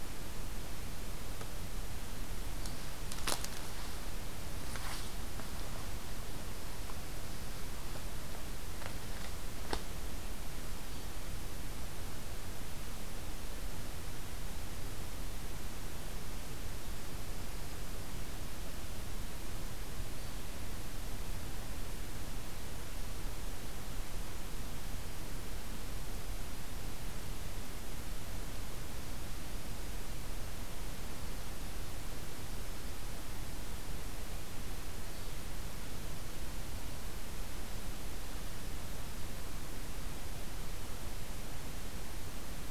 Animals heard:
forest ambience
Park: Acadia National Park